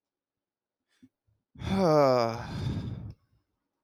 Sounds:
Sigh